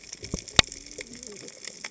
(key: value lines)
label: biophony, cascading saw
recorder: HydroMoth